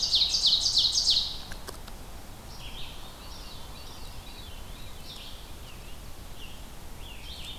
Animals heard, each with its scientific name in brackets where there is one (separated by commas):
Red-eyed Vireo (Vireo olivaceus), Ovenbird (Seiurus aurocapilla), Veery (Catharus fuscescens), Scarlet Tanager (Piranga olivacea)